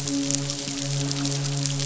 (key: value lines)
label: biophony, midshipman
recorder: SoundTrap 500